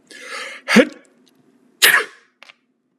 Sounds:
Sneeze